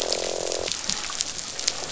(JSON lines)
{"label": "biophony, croak", "recorder": "SoundTrap 500"}